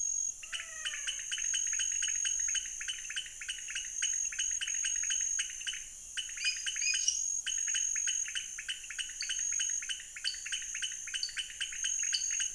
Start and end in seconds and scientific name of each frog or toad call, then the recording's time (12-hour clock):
0.0	12.5	Leptodactylus podicipinus
0.3	1.4	Physalaemus albonotatus
6.4	7.0	Dendropsophus nanus
7.0	7.3	Dendropsophus minutus
9.1	9.5	Dendropsophus nanus
10.2	12.5	Dendropsophus nanus
7:00pm